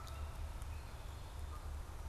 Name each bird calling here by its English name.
Canada Goose